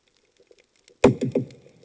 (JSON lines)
{"label": "anthrophony, bomb", "recorder": "HydroMoth"}